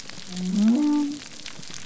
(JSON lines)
{"label": "biophony", "recorder": "SoundTrap 300"}